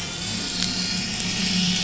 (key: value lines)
label: anthrophony, boat engine
recorder: SoundTrap 500